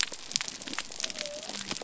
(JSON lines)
{"label": "biophony", "recorder": "SoundTrap 300"}